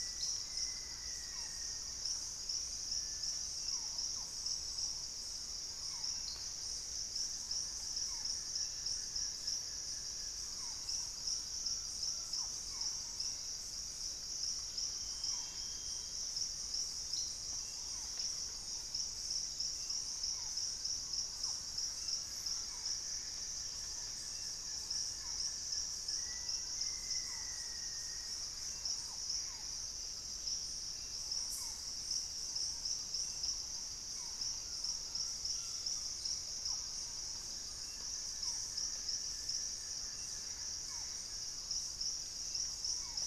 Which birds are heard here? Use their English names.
Black-faced Antthrush, Thrush-like Wren, Barred Forest-Falcon, unidentified bird, Buff-throated Woodcreeper, Collared Trogon, Hauxwell's Thrush, Purple-throated Fruitcrow, Gray Antbird